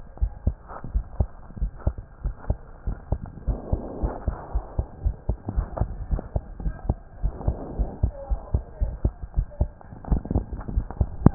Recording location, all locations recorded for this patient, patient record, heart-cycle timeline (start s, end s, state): pulmonary valve (PV)
aortic valve (AV)+pulmonary valve (PV)+tricuspid valve (TV)+mitral valve (MV)
#Age: Child
#Sex: Male
#Height: 108.0 cm
#Weight: 18.0 kg
#Pregnancy status: False
#Murmur: Absent
#Murmur locations: nan
#Most audible location: nan
#Systolic murmur timing: nan
#Systolic murmur shape: nan
#Systolic murmur grading: nan
#Systolic murmur pitch: nan
#Systolic murmur quality: nan
#Diastolic murmur timing: nan
#Diastolic murmur shape: nan
#Diastolic murmur grading: nan
#Diastolic murmur pitch: nan
#Diastolic murmur quality: nan
#Outcome: Normal
#Campaign: 2015 screening campaign
0.00	0.19	unannotated
0.19	0.32	S1
0.32	0.44	systole
0.44	0.56	S2
0.56	0.88	diastole
0.88	1.06	S1
1.06	1.18	systole
1.18	1.34	S2
1.34	1.56	diastole
1.56	1.72	S1
1.72	1.84	systole
1.84	1.98	S2
1.98	2.22	diastole
2.22	2.34	S1
2.34	2.48	systole
2.48	2.60	S2
2.60	2.84	diastole
2.84	2.98	S1
2.98	3.10	systole
3.10	3.20	S2
3.20	3.42	diastole
3.42	3.58	S1
3.58	3.70	systole
3.70	3.80	S2
3.80	4.02	diastole
4.02	4.12	S1
4.12	4.26	systole
4.26	4.36	S2
4.36	4.54	diastole
4.54	4.64	S1
4.64	4.76	systole
4.76	4.86	S2
4.86	5.04	diastole
5.04	5.18	S1
5.18	5.28	systole
5.28	5.38	S2
5.38	5.56	diastole
5.56	5.70	S1
5.70	5.78	systole
5.78	5.90	S2
5.90	6.08	diastole
6.08	6.20	S1
6.20	6.34	systole
6.34	6.44	S2
6.44	6.60	diastole
6.60	6.74	S1
6.74	6.84	systole
6.84	6.98	S2
6.98	7.20	diastole
7.20	7.34	S1
7.34	7.46	systole
7.46	7.58	S2
7.58	7.78	diastole
7.78	7.90	S1
7.90	8.02	systole
8.02	8.16	S2
8.16	8.30	diastole
8.30	8.42	S1
8.42	8.50	systole
8.50	8.64	S2
8.64	8.80	diastole
8.80	8.96	S1
8.96	9.00	systole
9.00	9.14	S2
9.14	9.34	diastole
9.34	9.48	S1
9.48	9.57	systole
9.57	9.74	S2
9.74	11.34	unannotated